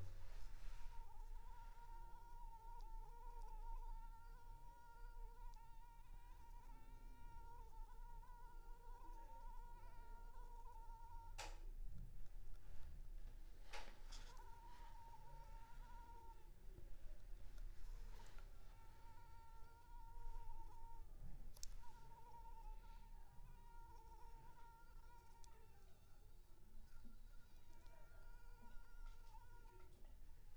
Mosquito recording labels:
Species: Anopheles arabiensis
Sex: female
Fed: unfed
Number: one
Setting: cup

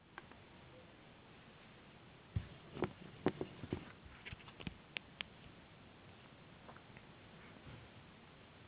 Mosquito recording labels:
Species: no mosquito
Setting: insect culture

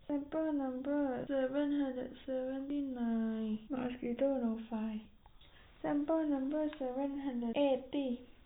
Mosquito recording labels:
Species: no mosquito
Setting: cup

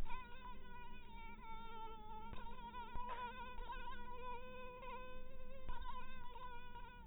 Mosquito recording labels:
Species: mosquito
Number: one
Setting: cup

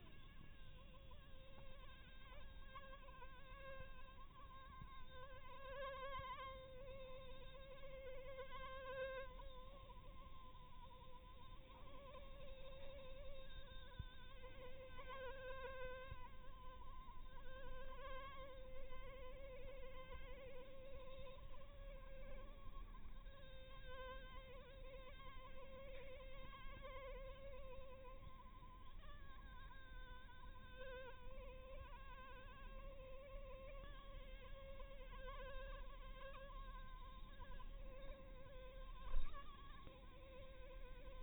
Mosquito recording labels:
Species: Anopheles harrisoni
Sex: female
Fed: blood-fed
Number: one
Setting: cup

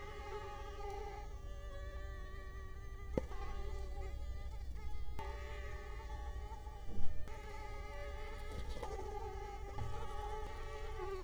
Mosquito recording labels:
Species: Culex quinquefasciatus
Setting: cup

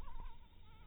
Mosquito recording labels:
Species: Anopheles maculatus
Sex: female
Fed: unfed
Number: one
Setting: cup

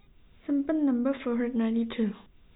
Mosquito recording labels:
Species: no mosquito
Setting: cup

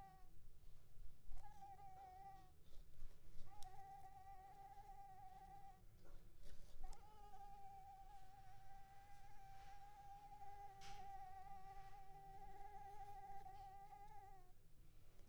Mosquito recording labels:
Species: Anopheles coustani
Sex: female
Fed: unfed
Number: one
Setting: cup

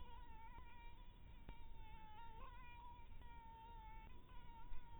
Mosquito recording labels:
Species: mosquito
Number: one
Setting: cup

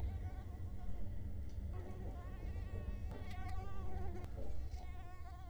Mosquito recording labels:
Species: Culex quinquefasciatus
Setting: cup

